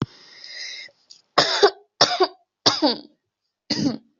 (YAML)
expert_labels:
- quality: good
  cough_type: dry
  dyspnea: false
  wheezing: false
  stridor: false
  choking: false
  congestion: false
  nothing: true
  diagnosis: upper respiratory tract infection
  severity: mild
age: 26
gender: female
respiratory_condition: true
fever_muscle_pain: false
status: COVID-19